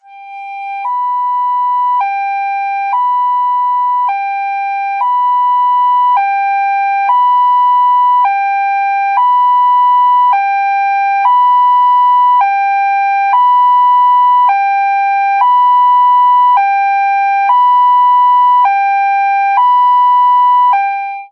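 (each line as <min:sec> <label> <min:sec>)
0:00.0 An ambulance siren sounds steadily and regularly. 0:21.3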